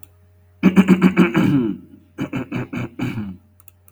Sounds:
Throat clearing